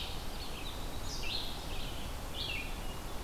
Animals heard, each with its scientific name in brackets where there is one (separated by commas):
Red-eyed Vireo (Vireo olivaceus)